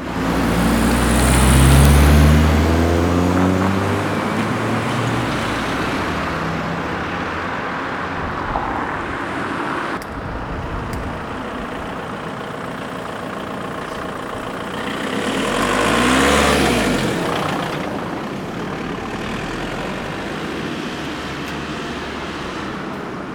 Is this a vehicle?
yes